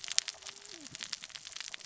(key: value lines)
label: biophony, cascading saw
recorder: SoundTrap 600 or HydroMoth